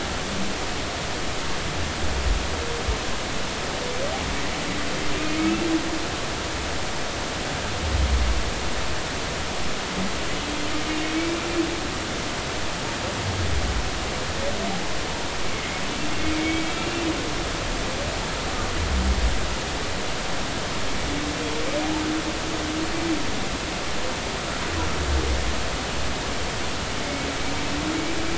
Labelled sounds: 5.4	5.7	humpback whale, 2.5 to 2.8 kHz
15.4	17.1	humpback whale, 2.0 to 2.8 kHz
27.0	27.3	humpback whale, 2.1 to 2.3 kHz

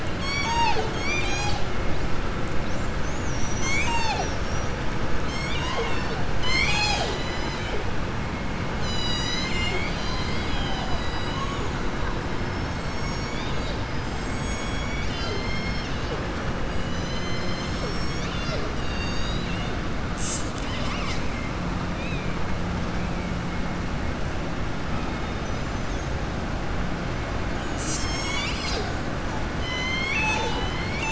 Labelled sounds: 18.7	19.7	killer whale, southern resident, 1.9 to 7.4 kHz

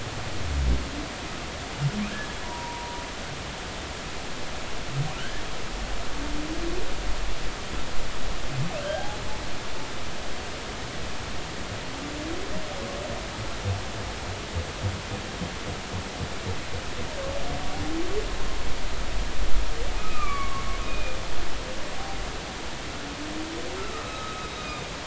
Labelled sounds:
2.1	3.0	humpback whale, 0.90 to 1.8 kHz
5.2	5.4	humpback whale, 1.3 to 1.9 kHz
8.8	9.1	humpback whale, 1.4 to 1.7 kHz
20.0	21.2	humpback whale, 1.0 to 2.7 kHz
23.8	24.9	humpback whale, 1.2 to 3.8 kHz

